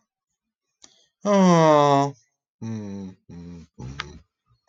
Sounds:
Sigh